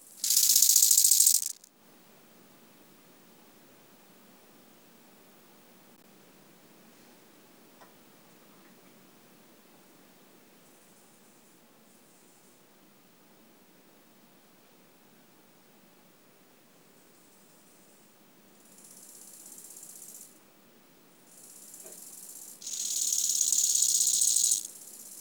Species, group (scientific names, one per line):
Chorthippus eisentrauti
Orthoptera